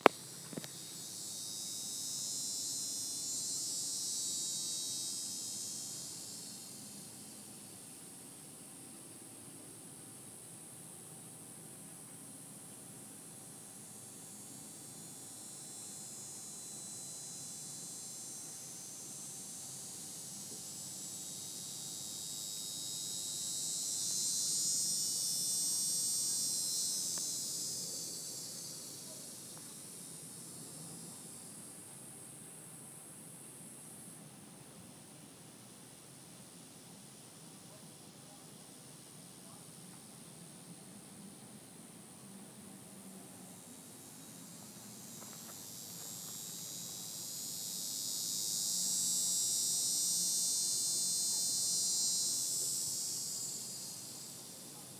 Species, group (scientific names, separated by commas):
Neotibicen davisi, Cicadidae